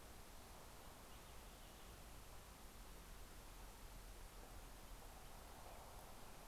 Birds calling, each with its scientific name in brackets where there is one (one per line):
Purple Finch (Haemorhous purpureus)